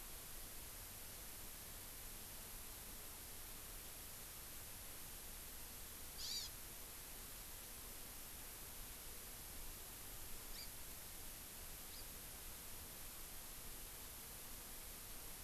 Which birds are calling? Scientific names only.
Chlorodrepanis virens